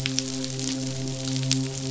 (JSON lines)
{"label": "biophony, midshipman", "recorder": "SoundTrap 500"}